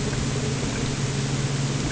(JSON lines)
{"label": "anthrophony, boat engine", "recorder": "HydroMoth"}